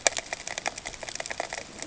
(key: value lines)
label: ambient
recorder: HydroMoth